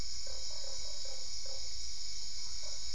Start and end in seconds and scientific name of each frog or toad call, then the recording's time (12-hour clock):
0.2	2.9	Boana lundii
8:30pm